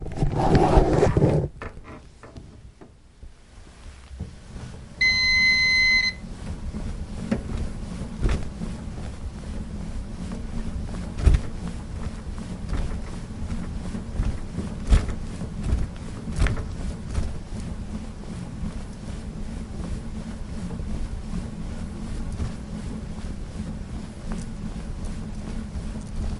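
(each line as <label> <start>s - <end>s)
A loud rustling sound of someone moving indoors. 0.0s - 2.5s
A sharp, high-pitched beep sounds after a button is pressed. 5.0s - 6.3s
Rhythmic pedaling sounds from an indoor bike. 6.3s - 26.4s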